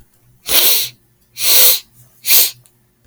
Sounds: Sniff